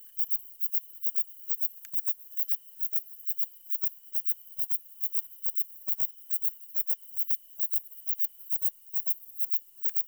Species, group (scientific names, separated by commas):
Platycleis intermedia, Orthoptera